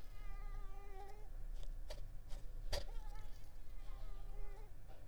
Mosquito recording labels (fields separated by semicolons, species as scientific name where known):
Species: Mansonia africanus; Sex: female; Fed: unfed; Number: one; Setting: cup